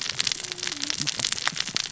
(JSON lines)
{"label": "biophony, cascading saw", "recorder": "SoundTrap 600 or HydroMoth"}